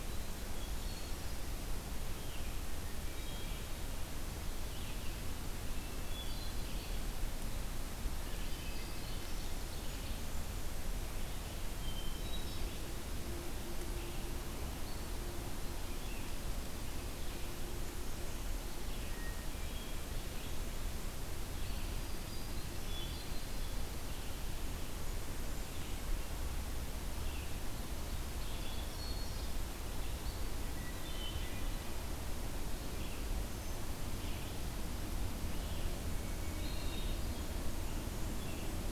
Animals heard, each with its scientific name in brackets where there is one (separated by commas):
Black-throated Green Warbler (Setophaga virens), Hermit Thrush (Catharus guttatus), Red-eyed Vireo (Vireo olivaceus)